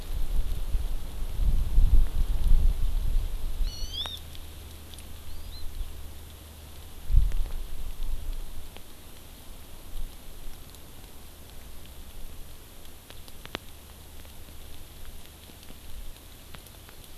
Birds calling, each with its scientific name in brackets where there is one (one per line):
Hawaii Amakihi (Chlorodrepanis virens)